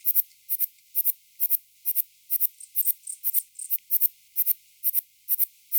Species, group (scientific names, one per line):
Platycleis intermedia
Orthoptera